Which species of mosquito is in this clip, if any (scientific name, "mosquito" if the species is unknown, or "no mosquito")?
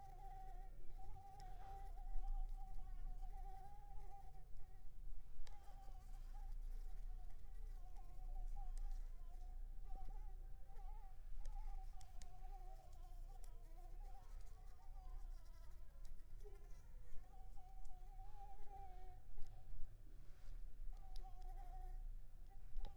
Anopheles arabiensis